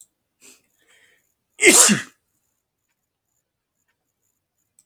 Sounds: Sneeze